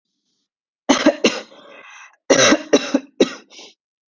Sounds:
Cough